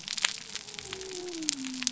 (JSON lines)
{"label": "biophony", "recorder": "SoundTrap 300"}